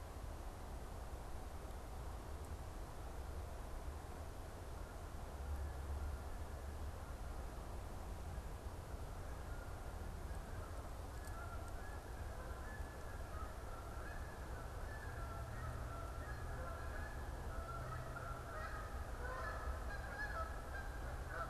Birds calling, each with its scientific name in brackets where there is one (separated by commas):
Canada Goose (Branta canadensis)